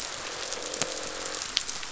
{"label": "biophony, croak", "recorder": "SoundTrap 500"}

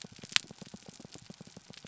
{"label": "biophony", "recorder": "SoundTrap 300"}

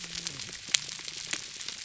{"label": "biophony, whup", "recorder": "SoundTrap 300"}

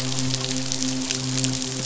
{"label": "biophony, midshipman", "recorder": "SoundTrap 500"}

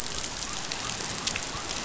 {"label": "biophony", "recorder": "SoundTrap 500"}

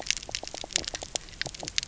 {"label": "biophony, knock croak", "recorder": "SoundTrap 300"}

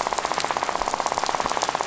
{"label": "biophony, rattle", "recorder": "SoundTrap 500"}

